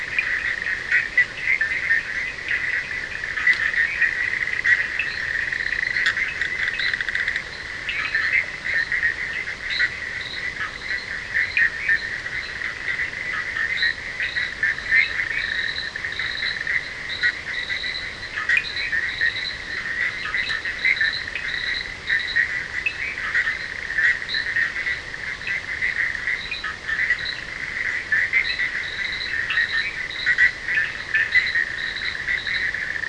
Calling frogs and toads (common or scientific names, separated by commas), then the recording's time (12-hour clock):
Cochran's lime tree frog, Bischoff's tree frog, fine-lined tree frog
1:30am